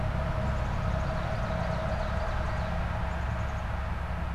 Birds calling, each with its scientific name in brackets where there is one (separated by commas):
Black-capped Chickadee (Poecile atricapillus), Ovenbird (Seiurus aurocapilla)